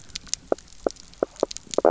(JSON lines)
{"label": "biophony, knock croak", "recorder": "SoundTrap 300"}